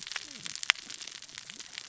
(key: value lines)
label: biophony, cascading saw
recorder: SoundTrap 600 or HydroMoth